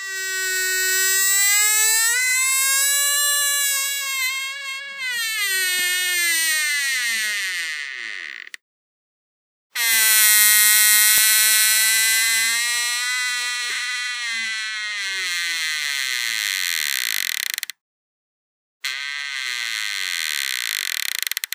Is this creaky?
yes